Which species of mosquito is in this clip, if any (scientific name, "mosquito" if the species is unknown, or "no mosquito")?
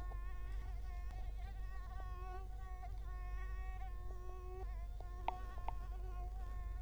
Culex quinquefasciatus